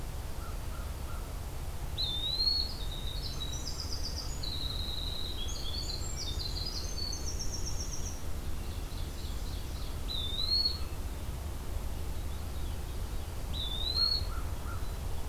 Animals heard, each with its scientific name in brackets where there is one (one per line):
American Crow (Corvus brachyrhynchos)
Winter Wren (Troglodytes hiemalis)
Eastern Wood-Pewee (Contopus virens)
Veery (Catharus fuscescens)
Ovenbird (Seiurus aurocapilla)